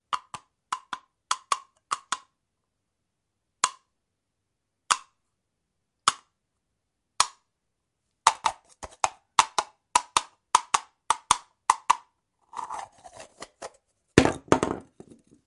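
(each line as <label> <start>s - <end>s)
The sound of horse hooves. 0.1s - 13.5s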